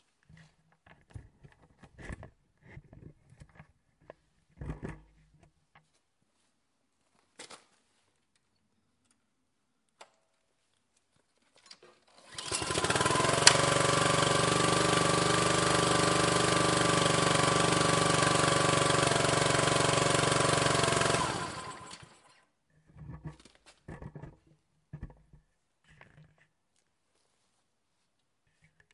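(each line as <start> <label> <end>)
12.4 A lawn mower starts up outside. 13.9
14.0 A lawn mower runs continuously outside. 21.0
21.0 A lawn mower shuts off. 25.3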